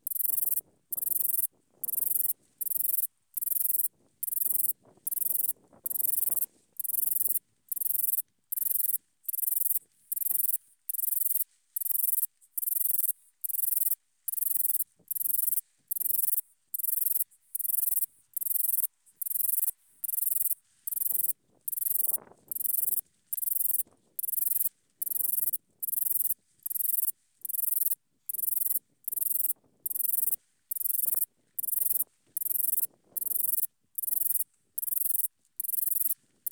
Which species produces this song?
Eugaster guyoni